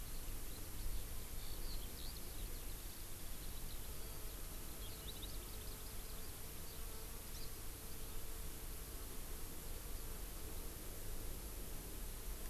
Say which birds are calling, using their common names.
Eurasian Skylark